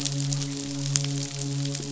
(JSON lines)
{"label": "biophony, midshipman", "recorder": "SoundTrap 500"}